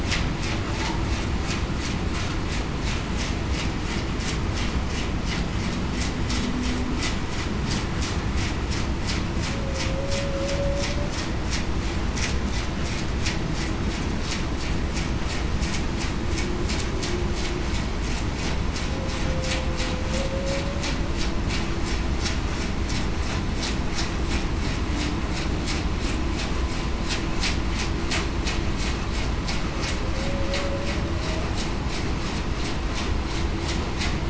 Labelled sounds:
9.5	9.8	humpback whale, 0.52 to 0.56 kHz
20.3	20.6	humpback whale, 0.54 to 0.58 kHz
30.1	30.7	humpback whale, 0.49 to 0.58 kHz

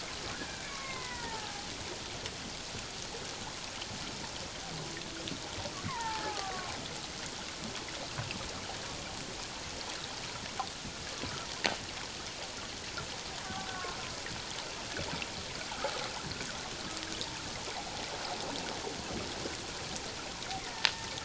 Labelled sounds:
0.3	1.7	killer whale, Bigg's (transient), 0.78 to 2.4 kHz
5.8	6.8	killer whale, Bigg's (transient), 0.78 to 2.2 kHz
13.4	13.7	killer whale, Bigg's (transient), 1.1 to 1.3 kHz
20.6	20.9	killer whale, Bigg's (transient), 1.8 to 2.2 kHz

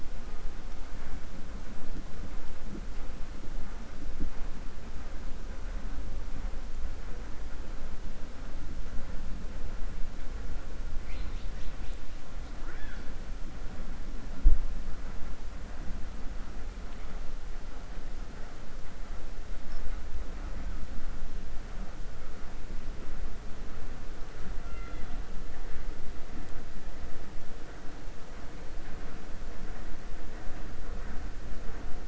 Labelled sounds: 10.9	12.0	killer whale, 1.9 to 6.0 kHz

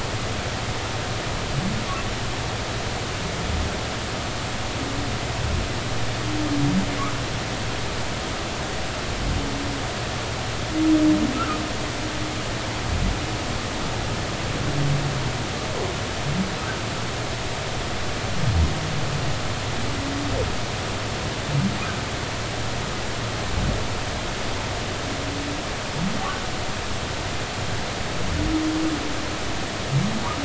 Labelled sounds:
11.3	11.6	humpback whale, 1.2 to 1.6 kHz

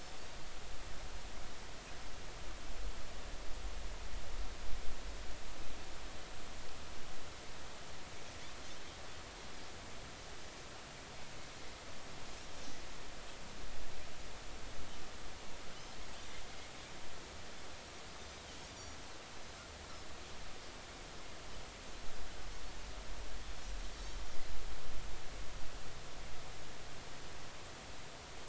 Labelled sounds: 18.2	18.5	Pacific white-sided dolphin, 3.6 to 3.9 kHz

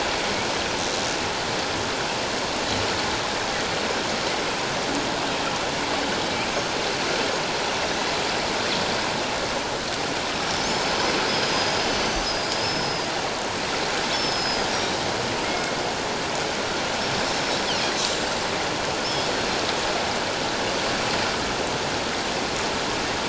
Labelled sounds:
10.5	13.0	killer whale, northern resident, 4.9 to 6.2 kHz
14.1	15.1	killer whale, northern resident, 4.8 to 5.8 kHz
15.4	15.7	killer whale, northern resident, 2.1 to 2.2 kHz
17.3	18.4	killer whale, northern resident, 5.3 to 7.6 kHz
19.0	19.6	killer whale, northern resident, 4.1 to 5.4 kHz

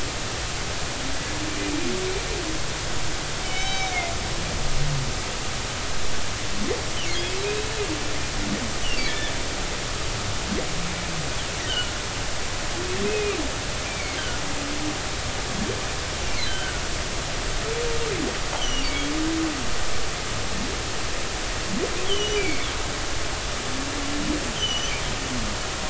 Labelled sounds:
1.5	1.8	humpback whale, 2.3 to 2.5 kHz
3.4	4.0	humpback whale, 2.1 to 6.2 kHz
9.1	9.3	humpback whale, 1.7 to 2.0 kHz
11.7	11.9	humpback whale, 1.3 to 1.6 kHz
13.0	13.4	humpback whale, 2.2 to 2.6 kHz
13.9	14.2	humpback whale, 2.0 to 2.4 kHz
16.5	16.8	humpback whale, 1.3 to 1.7 kHz
18.6	19.1	humpback whale, 2.2 to 6.0 kHz
22.0	22.7	humpback whale, 2.1 to 4.8 kHz
24.6	24.9	humpback whale, 2.9 to 6.1 kHz

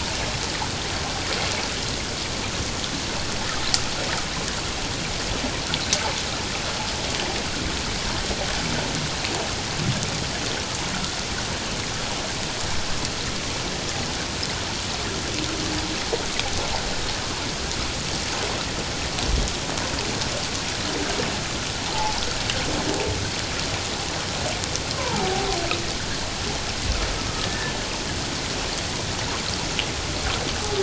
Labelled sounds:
21.9	22.2	humpback whale, 0.78 to 1.0 kHz
25.0	25.5	humpback whale, 0.78 to 1.1 kHz
27.4	27.7	humpback whale, 1.6 to 1.8 kHz

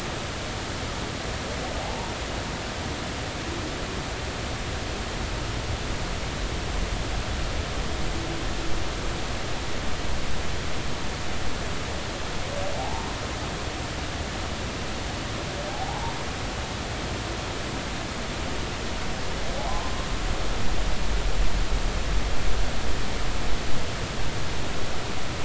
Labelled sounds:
1.8	2.1	humpback whale, 0.80 to 0.99 kHz
12.7	13.2	humpback whale, 0.80 to 1.1 kHz
15.7	16.1	humpback whale, 0.80 to 1.1 kHz
19.5	19.9	humpback whale, 0.80 to 1.1 kHz

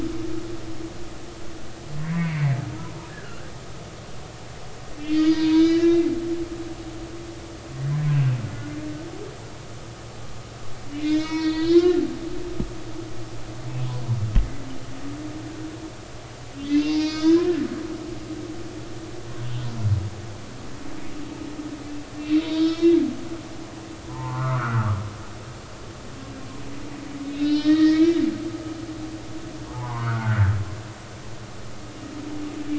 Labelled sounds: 2.2	3.4	humpback whale, 1.3 to 2.4 kHz
5.0	6.1	humpback whale, 0.90 to 5.2 kHz
8.5	8.7	humpback whale, 1.4 to 1.5 kHz
10.9	12.0	humpback whale, 0.90 to 5.8 kHz
16.7	17.7	humpback whale, 1.2 to 6.6 kHz
22.5	23.0	humpback whale, 1.9 to 5.5 kHz
24.1	24.9	humpback whale, 0.83 to 1.6 kHz
27.5	28.7	humpback whale, 1.6 to 4.0 kHz
29.7	30.4	humpback whale, 0.80 to 1.6 kHz

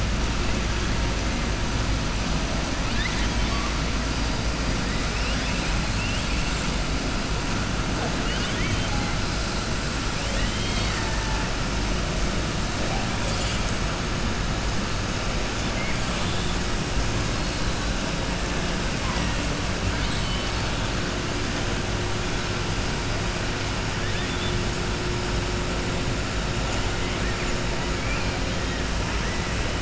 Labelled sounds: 2.8	3.7	killer whale, southern resident, 1.1 to 4.9 kHz
5.9	6.6	killer whale, southern resident, 2.4 to 3.8 kHz
8.2	8.9	killer whale, southern resident, 1.5 to 4.5 kHz
10.2	11.4	killer whale, southern resident, 0.88 to 5.6 kHz
19.9	20.7	killer whale, southern resident, 2.1 to 4.6 kHz
24.0	24.6	killer whale, southern resident, 1.7 to 3.9 kHz

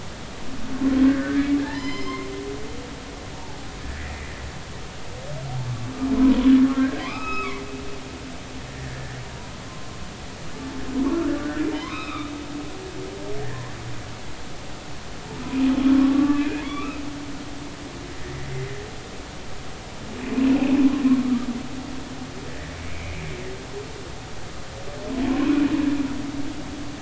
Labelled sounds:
1.1	2.3	humpback whale, 0.83 to 7.3 kHz
3.4	3.6	humpback whale, 0.80 to 0.96 kHz
6.2	6.5	humpback whale, 0.93 to 1.2 kHz
7.0	7.6	humpback whale, 0.96 to 3.9 kHz
8.7	9.2	humpback whale, 1.6 to 2.0 kHz
11.7	12.3	humpback whale, 0.86 to 4.0 kHz
13.4	13.7	humpback whale, 1.6 to 2.0 kHz
15.9	17.0	humpback whale, 1.1 to 2.8 kHz
20.4	21.5	humpback whale, 1.1 to 2.8 kHz
22.5	23.2	humpback whale, 1.6 to 2.5 kHz
25.3	25.5	humpback whale, 0.96 to 1.1 kHz

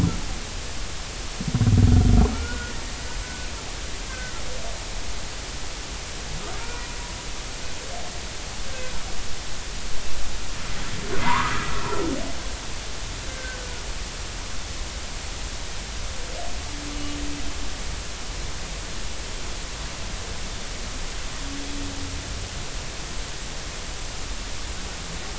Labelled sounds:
2.3	2.7	humpback whale, 1.3 to 1.5 kHz
3.2	3.5	humpback whale, 1.47 to 1.54 kHz
4.1	4.3	humpback whale, 1.5 to 1.6 kHz
6.6	6.9	humpback whale, 1.3 to 2.5 kHz
8.7	8.9	humpback whale, 1.5 to 1.6 kHz
11.2	11.7	humpback whale, 0.86 to 1.4 kHz
13.3	13.6	humpback whale, 1.5 to 1.6 kHz

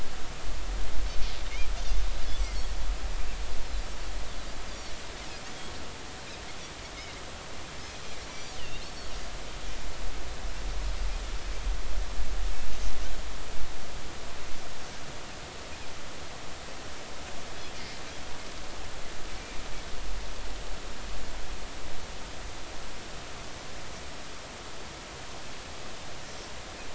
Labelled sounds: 4.7	4.9	Pacific white-sided dolphin, 4.2 to 4.9 kHz
6.9	7.2	Pacific white-sided dolphin, 3.7 to 3.9 kHz
8.3	9.1	Pacific white-sided dolphin, 2.7 to 5.9 kHz

